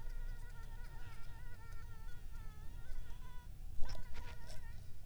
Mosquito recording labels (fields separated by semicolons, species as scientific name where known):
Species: Anopheles arabiensis; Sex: female; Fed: unfed; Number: one; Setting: cup